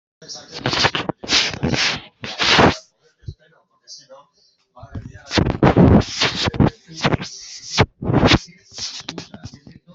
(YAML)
expert_labels:
- quality: no cough present
  dyspnea: false
  wheezing: false
  stridor: false
  choking: false
  congestion: false
  nothing: false
age: 46
gender: female
respiratory_condition: false
fever_muscle_pain: false
status: healthy